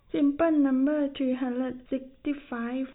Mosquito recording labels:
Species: no mosquito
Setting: cup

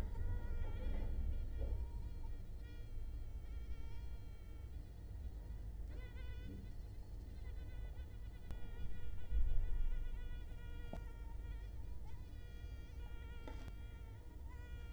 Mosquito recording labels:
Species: Culex quinquefasciatus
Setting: cup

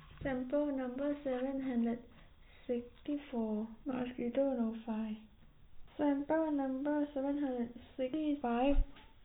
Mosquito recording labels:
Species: no mosquito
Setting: cup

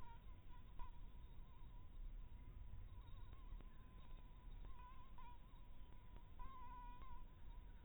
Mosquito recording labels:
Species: mosquito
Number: one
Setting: cup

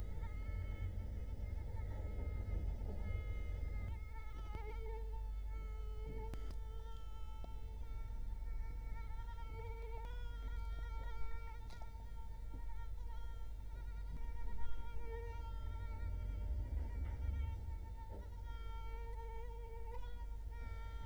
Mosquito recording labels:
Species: Culex quinquefasciatus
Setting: cup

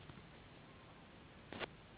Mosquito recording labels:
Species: Anopheles gambiae s.s.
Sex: female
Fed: unfed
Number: one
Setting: insect culture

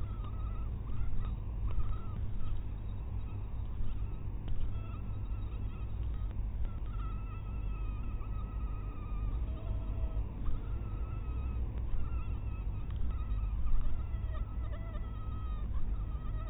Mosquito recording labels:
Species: mosquito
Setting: cup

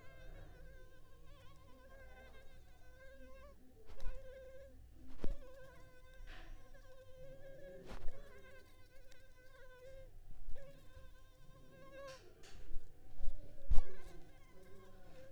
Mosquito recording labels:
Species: Anopheles arabiensis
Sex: female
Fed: unfed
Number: one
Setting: cup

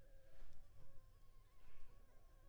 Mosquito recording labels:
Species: Anopheles funestus s.s.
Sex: female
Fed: unfed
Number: one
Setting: cup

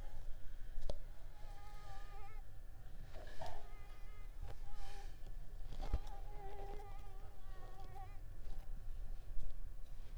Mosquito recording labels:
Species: Mansonia africanus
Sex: female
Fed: unfed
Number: one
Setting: cup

